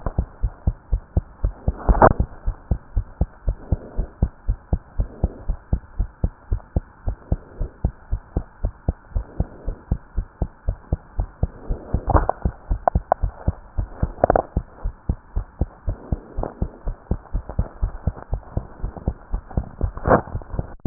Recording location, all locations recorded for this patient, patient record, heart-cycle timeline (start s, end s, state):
pulmonary valve (PV)
aortic valve (AV)+pulmonary valve (PV)+tricuspid valve (TV)+mitral valve (MV)
#Age: Child
#Sex: Female
#Height: 112.0 cm
#Weight: 18.6 kg
#Pregnancy status: False
#Murmur: Absent
#Murmur locations: nan
#Most audible location: nan
#Systolic murmur timing: nan
#Systolic murmur shape: nan
#Systolic murmur grading: nan
#Systolic murmur pitch: nan
#Systolic murmur quality: nan
#Diastolic murmur timing: nan
#Diastolic murmur shape: nan
#Diastolic murmur grading: nan
#Diastolic murmur pitch: nan
#Diastolic murmur quality: nan
#Outcome: Normal
#Campaign: 2015 screening campaign
0.00	0.26	unannotated
0.26	0.40	diastole
0.40	0.52	S1
0.52	0.64	systole
0.64	0.76	S2
0.76	0.90	diastole
0.90	1.02	S1
1.02	1.12	systole
1.12	1.24	S2
1.24	1.40	diastole
1.40	1.54	S1
1.54	1.66	systole
1.66	1.76	S2
1.76	1.88	diastole
1.88	2.00	S1
2.00	2.02	systole
2.02	2.18	S2
2.18	2.38	diastole
2.38	2.56	S1
2.56	2.68	systole
2.68	2.78	S2
2.78	2.94	diastole
2.94	3.06	S1
3.06	3.18	systole
3.18	3.30	S2
3.30	3.46	diastole
3.46	3.58	S1
3.58	3.70	systole
3.70	3.80	S2
3.80	3.96	diastole
3.96	4.08	S1
4.08	4.18	systole
4.18	4.30	S2
4.30	4.46	diastole
4.46	4.58	S1
4.58	4.68	systole
4.68	4.80	S2
4.80	4.96	diastole
4.96	5.10	S1
5.10	5.22	systole
5.22	5.32	S2
5.32	5.46	diastole
5.46	5.58	S1
5.58	5.68	systole
5.68	5.80	S2
5.80	5.98	diastole
5.98	6.10	S1
6.10	6.20	systole
6.20	6.32	S2
6.32	6.50	diastole
6.50	6.62	S1
6.62	6.72	systole
6.72	6.86	S2
6.86	7.04	diastole
7.04	7.16	S1
7.16	7.28	systole
7.28	7.40	S2
7.40	7.58	diastole
7.58	7.70	S1
7.70	7.80	systole
7.80	7.92	S2
7.92	8.10	diastole
8.10	8.20	S1
8.20	8.32	systole
8.32	8.44	S2
8.44	8.62	diastole
8.62	8.72	S1
8.72	8.84	systole
8.84	8.98	S2
8.98	9.14	diastole
9.14	9.26	S1
9.26	9.38	systole
9.38	9.48	S2
9.48	9.66	diastole
9.66	9.76	S1
9.76	9.90	systole
9.90	10.00	S2
10.00	10.16	diastole
10.16	10.26	S1
10.26	10.39	systole
10.39	10.50	S2
10.50	10.66	diastole
10.66	10.76	S1
10.76	10.88	systole
10.88	11.00	S2
11.00	11.15	diastole
11.15	11.30	S1
11.30	11.40	systole
11.40	11.51	S2
11.51	11.67	diastole
11.67	11.78	S1
11.78	11.92	systole
11.92	12.02	S2
12.02	12.16	diastole
12.16	12.30	S1
12.30	12.44	systole
12.44	12.54	S2
12.54	12.68	diastole
12.68	12.82	S1
12.82	12.92	systole
12.92	13.06	S2
13.06	13.22	diastole
13.22	13.34	S1
13.34	13.46	systole
13.46	13.58	S2
13.58	13.76	diastole
13.76	13.90	S1
13.90	14.00	systole
14.00	14.14	S2
14.14	14.28	diastole
14.28	14.44	S1
14.44	14.54	systole
14.54	14.66	S2
14.66	14.81	diastole
14.81	14.94	S1
14.94	15.06	systole
15.06	15.18	S2
15.18	15.34	diastole
15.34	15.46	S1
15.46	15.58	systole
15.58	15.70	S2
15.70	15.84	diastole
15.84	15.98	S1
15.98	16.10	systole
16.10	16.22	S2
16.22	16.35	diastole
16.35	16.46	S1
16.46	16.58	systole
16.58	16.70	S2
16.70	16.84	diastole
16.84	16.96	S1
16.96	17.09	systole
17.09	17.20	S2
17.20	17.32	diastole
17.32	17.44	S1
17.44	17.56	systole
17.56	17.68	S2
17.68	17.80	diastole
17.80	17.96	S1
17.96	18.05	systole
18.05	18.16	S2
18.16	18.30	diastole
18.30	18.44	S1
18.44	18.54	systole
18.54	18.66	S2
18.66	18.81	diastole
18.81	18.92	S1
18.92	19.04	systole
19.04	19.16	S2
19.16	19.30	diastole
19.30	19.41	S1
19.41	19.55	systole
19.55	19.66	S2
19.66	19.80	diastole
19.80	20.86	unannotated